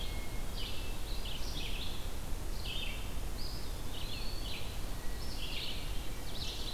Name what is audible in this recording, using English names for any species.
Hermit Thrush, Red-eyed Vireo, Eastern Wood-Pewee, Ovenbird